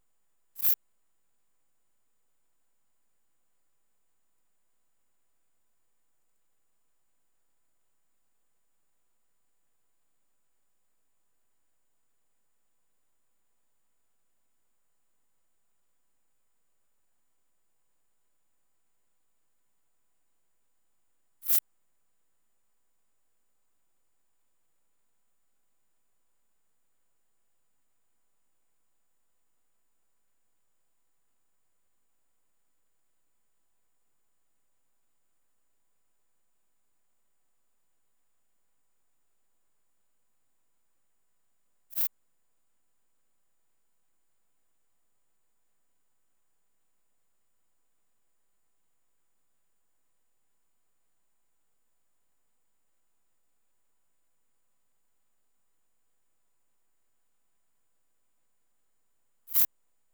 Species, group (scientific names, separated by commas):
Eupholidoptera latens, Orthoptera